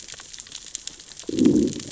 {"label": "biophony, growl", "recorder": "SoundTrap 600 or HydroMoth"}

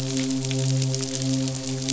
{"label": "biophony, midshipman", "recorder": "SoundTrap 500"}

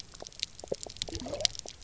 {"label": "biophony, pulse", "recorder": "SoundTrap 300"}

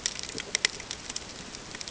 {"label": "ambient", "recorder": "HydroMoth"}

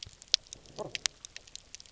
{"label": "biophony", "recorder": "SoundTrap 300"}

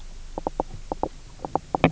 {"label": "biophony, knock croak", "recorder": "SoundTrap 300"}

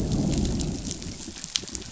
{"label": "biophony, growl", "recorder": "SoundTrap 500"}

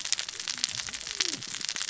{"label": "biophony, cascading saw", "recorder": "SoundTrap 600 or HydroMoth"}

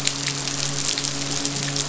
{"label": "biophony, midshipman", "recorder": "SoundTrap 500"}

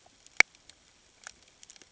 {"label": "ambient", "recorder": "HydroMoth"}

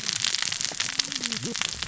{"label": "biophony, cascading saw", "recorder": "SoundTrap 600 or HydroMoth"}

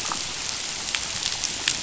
{"label": "biophony", "recorder": "SoundTrap 500"}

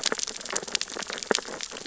{"label": "biophony, sea urchins (Echinidae)", "recorder": "SoundTrap 600 or HydroMoth"}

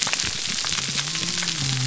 {"label": "biophony", "recorder": "SoundTrap 300"}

